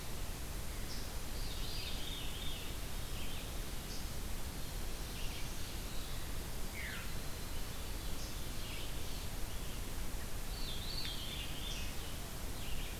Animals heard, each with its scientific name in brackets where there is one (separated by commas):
Red-eyed Vireo (Vireo olivaceus), Veery (Catharus fuscescens), Black-throated Blue Warbler (Setophaga caerulescens)